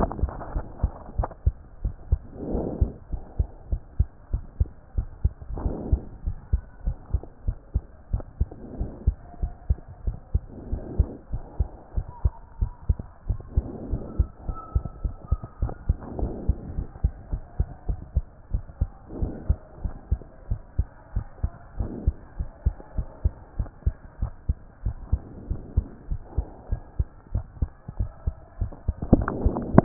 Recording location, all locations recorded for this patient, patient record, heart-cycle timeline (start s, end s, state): pulmonary valve (PV)
aortic valve (AV)+pulmonary valve (PV)+tricuspid valve (TV)+mitral valve (MV)
#Age: Child
#Sex: Female
#Height: 117.0 cm
#Weight: 24.0 kg
#Pregnancy status: False
#Murmur: Absent
#Murmur locations: nan
#Most audible location: nan
#Systolic murmur timing: nan
#Systolic murmur shape: nan
#Systolic murmur grading: nan
#Systolic murmur pitch: nan
#Systolic murmur quality: nan
#Diastolic murmur timing: nan
#Diastolic murmur shape: nan
#Diastolic murmur grading: nan
#Diastolic murmur pitch: nan
#Diastolic murmur quality: nan
#Outcome: Normal
#Campaign: 2014 screening campaign
0.00	0.12	unannotated
0.12	0.20	systole
0.20	0.34	S2
0.34	0.54	diastole
0.54	0.66	S1
0.66	0.80	systole
0.80	0.92	S2
0.92	1.14	diastole
1.14	1.28	S1
1.28	1.42	systole
1.42	1.56	S2
1.56	1.82	diastole
1.82	1.96	S1
1.96	2.08	systole
2.08	2.20	S2
2.20	2.48	diastole
2.48	2.66	S1
2.66	2.80	systole
2.80	2.92	S2
2.92	3.12	diastole
3.12	3.22	S1
3.22	3.36	systole
3.36	3.48	S2
3.48	3.70	diastole
3.70	3.80	S1
3.80	3.96	systole
3.96	4.10	S2
4.10	4.32	diastole
4.32	4.44	S1
4.44	4.56	systole
4.56	4.70	S2
4.70	4.96	diastole
4.96	5.08	S1
5.08	5.20	systole
5.20	5.34	S2
5.34	5.56	diastole
5.56	5.74	S1
5.74	5.90	systole
5.90	6.04	S2
6.04	6.24	diastole
6.24	6.36	S1
6.36	6.48	systole
6.48	6.62	S2
6.62	6.84	diastole
6.84	6.96	S1
6.96	7.10	systole
7.10	7.22	S2
7.22	7.46	diastole
7.46	7.56	S1
7.56	7.72	systole
7.72	7.84	S2
7.84	8.12	diastole
8.12	8.24	S1
8.24	8.36	systole
8.36	8.48	S2
8.48	8.74	diastole
8.74	8.88	S1
8.88	9.02	systole
9.02	9.16	S2
9.16	9.40	diastole
9.40	9.52	S1
9.52	9.66	systole
9.66	9.80	S2
9.80	10.04	diastole
10.04	10.18	S1
10.18	10.30	systole
10.30	10.44	S2
10.44	10.70	diastole
10.70	10.84	S1
10.84	10.98	systole
10.98	11.10	S2
11.10	11.32	diastole
11.32	11.44	S1
11.44	11.56	systole
11.56	11.70	S2
11.70	11.96	diastole
11.96	12.06	S1
12.06	12.20	systole
12.20	12.34	S2
12.34	12.60	diastole
12.60	12.72	S1
12.72	12.86	systole
12.86	12.98	S2
12.98	13.28	diastole
13.28	13.42	S1
13.42	13.54	systole
13.54	13.68	S2
13.68	13.90	diastole
13.90	14.02	S1
14.02	14.16	systole
14.16	14.28	S2
14.28	14.48	diastole
14.48	14.56	S1
14.56	14.74	systole
14.74	14.84	S2
14.84	15.04	diastole
15.04	15.16	S1
15.16	15.28	systole
15.28	15.40	S2
15.40	15.62	diastole
15.62	15.74	S1
15.74	15.86	systole
15.86	15.98	S2
15.98	16.18	diastole
16.18	16.34	S1
16.34	16.46	systole
16.46	16.56	S2
16.56	16.76	diastole
16.76	16.88	S1
16.88	17.00	systole
17.00	17.12	S2
17.12	17.32	diastole
17.32	17.42	S1
17.42	17.56	systole
17.56	17.68	S2
17.68	17.88	diastole
17.88	18.00	S1
18.00	18.12	systole
18.12	18.26	S2
18.26	18.50	diastole
18.50	18.64	S1
18.64	18.80	systole
18.80	18.90	S2
18.90	19.20	diastole
19.20	19.34	S1
19.34	19.48	systole
19.48	19.60	S2
19.60	19.82	diastole
19.82	19.94	S1
19.94	20.08	systole
20.08	20.20	S2
20.20	20.50	diastole
20.50	20.60	S1
20.60	20.78	systole
20.78	20.88	S2
20.88	21.14	diastole
21.14	21.26	S1
21.26	21.40	systole
21.40	21.52	S2
21.52	21.78	diastole
21.78	21.90	S1
21.90	22.04	systole
22.04	22.16	S2
22.16	22.38	diastole
22.38	22.48	S1
22.48	22.62	systole
22.62	22.76	S2
22.76	22.96	diastole
22.96	23.08	S1
23.08	23.24	systole
23.24	23.34	S2
23.34	23.58	diastole
23.58	23.68	S1
23.68	23.82	systole
23.82	23.94	S2
23.94	24.20	diastole
24.20	24.32	S1
24.32	24.50	systole
24.50	24.58	S2
24.58	24.84	diastole
24.84	24.96	S1
24.96	25.08	systole
25.08	25.20	S2
25.20	25.46	diastole
25.46	25.60	S1
25.60	25.76	systole
25.76	25.86	S2
25.86	26.10	diastole
26.10	26.20	S1
26.20	26.36	systole
26.36	26.46	S2
26.46	26.70	diastole
26.70	26.82	S1
26.82	26.96	systole
26.96	27.10	S2
27.10	27.34	diastole
27.34	27.46	S1
27.46	27.58	systole
27.58	27.72	S2
27.72	27.98	diastole
27.98	28.12	S1
28.12	28.26	systole
28.26	28.36	S2
28.36	28.60	diastole
28.60	28.72	S1
28.72	28.85	systole
28.85	28.95	S2
28.95	29.10	diastole
29.10	29.28	S1
29.28	29.40	systole
29.40	29.54	S2
29.54	29.74	diastole
29.74	29.84	S1